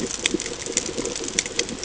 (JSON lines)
{"label": "ambient", "recorder": "HydroMoth"}